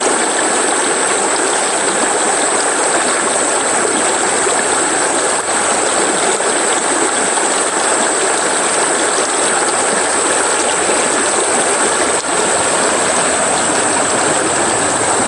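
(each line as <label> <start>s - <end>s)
Crickets chirping softly. 0.0s - 15.3s
Loud water sounds. 0.0s - 15.3s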